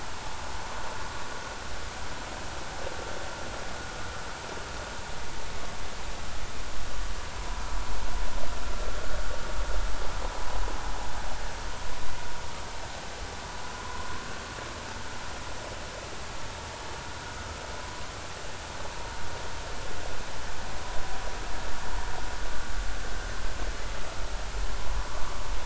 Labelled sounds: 13.7	14.1	vessel noise, 0.96 to 1.1 kHz

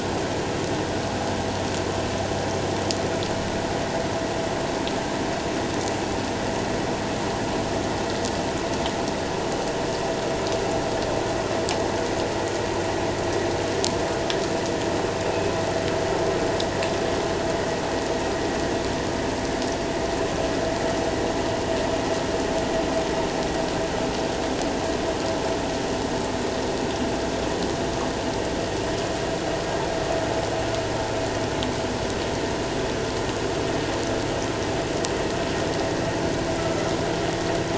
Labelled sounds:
36.6	36.9	humpback whale, 1.2 to 1.4 kHz

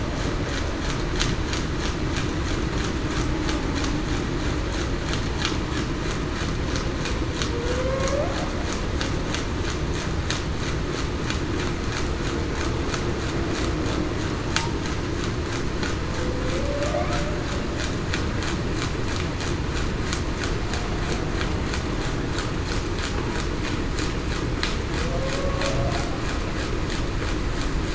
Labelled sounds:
7.5	8.3	humpback whale, 0.45 to 0.77 kHz
16.6	17.0	humpback whale, 0.52 to 0.77 kHz

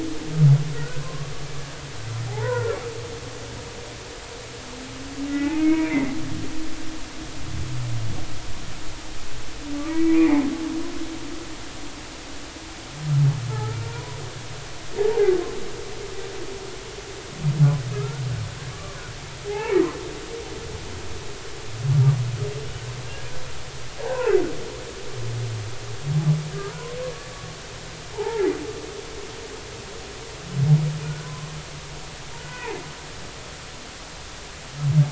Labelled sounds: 0.7	1.3	humpback whale, 0.99 to 1.5 kHz
2.3	2.8	humpback whale, 0.80 to 1.6 kHz
5.3	6.1	humpback whale, 0.83 to 2.6 kHz
9.9	10.5	humpback whale, 1.9 to 2.5 kHz
13.5	14.2	humpback whale, 0.80 to 1.4 kHz
15.0	15.3	humpback whale, 0.80 to 0.99 kHz
17.9	19.0	humpback whale, 0.99 to 1.5 kHz
19.5	19.8	humpback whale, 0.80 to 2.4 kHz
23.0	24.4	humpback whale, 0.80 to 1.9 kHz
26.7	27.0	humpback whale, 0.93 to 1.1 kHz
28.2	28.5	humpback whale, 1.6 to 1.9 kHz
29.1	29.5	humpback whale, 0.80 to 1.0 kHz
31.0	31.5	humpback whale, 0.96 to 1.6 kHz
32.4	32.8	humpback whale, 0.80 to 2.6 kHz

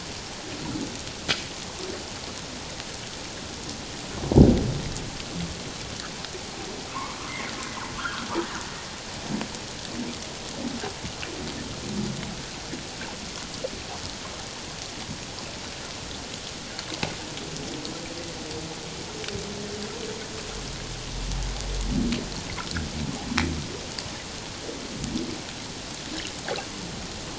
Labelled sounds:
6.9	7.5	humpback whale, 0.84 to 2.3 kHz
8.0	8.3	humpback whale, 1.0 to 1.7 kHz

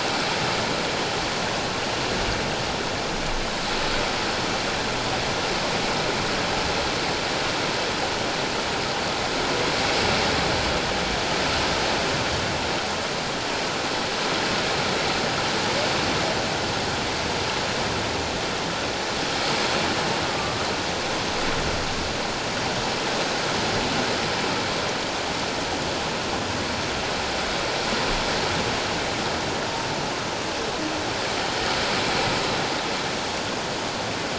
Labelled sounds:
20.3	20.6	humpback whale, 1.1 to 1.2 kHz

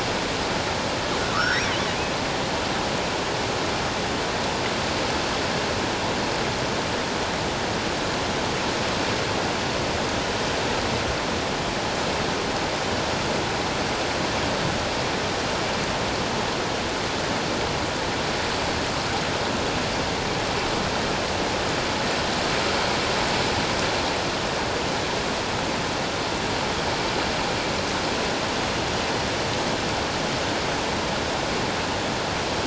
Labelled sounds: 1.2	1.7	killer whale, offshore, 1.1 to 5.8 kHz

